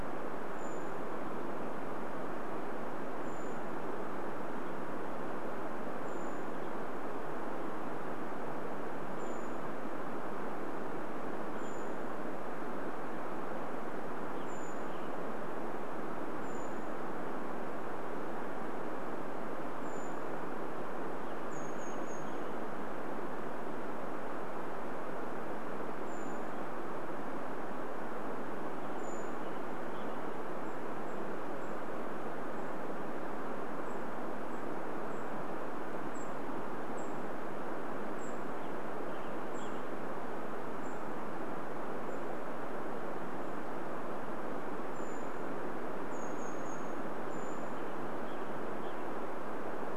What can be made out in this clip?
Brown Creeper call, Western Tanager call, Western Tanager song